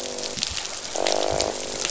{"label": "biophony, croak", "recorder": "SoundTrap 500"}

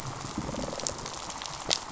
{"label": "biophony, rattle response", "recorder": "SoundTrap 500"}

